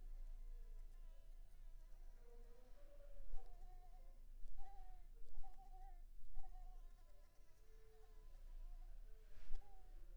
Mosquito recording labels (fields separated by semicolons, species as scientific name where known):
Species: Anopheles squamosus; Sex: female; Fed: unfed; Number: one; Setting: cup